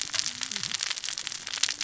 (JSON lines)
{"label": "biophony, cascading saw", "recorder": "SoundTrap 600 or HydroMoth"}